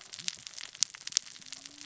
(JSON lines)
{"label": "biophony, cascading saw", "recorder": "SoundTrap 600 or HydroMoth"}